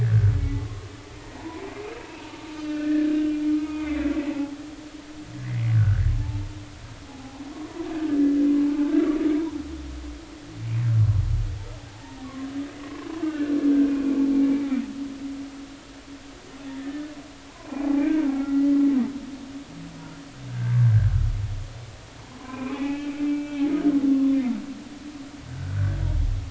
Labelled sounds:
0.0	0.4	humpback whale, 1.4 to 2.0 kHz
1.2	1.6	humpback whale, 0.83 to 2.0 kHz
1.9	4.1	humpback whale, 0.86 to 2.9 kHz
5.8	6.4	humpback whale, 0.80 to 2.0 kHz
7.0	7.4	humpback whale, 0.80 to 0.96 kHz
8.9	9.6	humpback whale, 0.80 to 1.8 kHz
11.9	12.3	humpback whale, 0.80 to 1.9 kHz
13.2	14.7	humpback whale, 1.4 to 2.8 kHz
16.7	18.7	humpback whale, 0.80 to 2.5 kHz
20.5	20.9	humpback whale, 1.5 to 1.7 kHz
22.4	23.8	humpback whale, 0.96 to 2.7 kHz
24.1	24.4	humpback whale, 0.99 to 1.2 kHz
25.5	26.0	humpback whale, 1.4 to 1.8 kHz

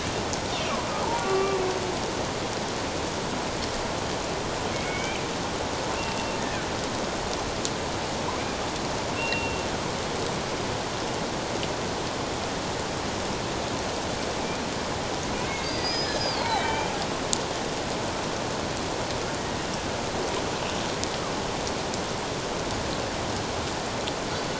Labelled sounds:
1.2	1.6	killer whale, Bigg's (transient), 1.1 to 2.8 kHz
4.7	5.2	killer whale, Bigg's (transient), 2.1 to 2.5 kHz
6.0	6.4	killer whale, Bigg's (transient), 2.7 to 2.8 kHz
9.2	9.6	killer whale, Bigg's (transient), 2.6 to 2.8 kHz
15.5	16.9	killer whale, Bigg's (transient), 0.78 to 5.2 kHz

